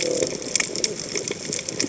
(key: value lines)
label: biophony
recorder: HydroMoth